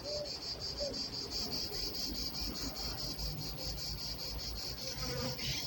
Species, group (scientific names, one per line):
Cicada orni
Cicadidae